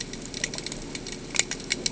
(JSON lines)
{"label": "ambient", "recorder": "HydroMoth"}